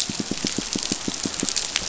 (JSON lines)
{"label": "biophony, pulse", "recorder": "SoundTrap 500"}